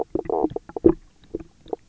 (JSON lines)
{"label": "biophony, knock croak", "recorder": "SoundTrap 300"}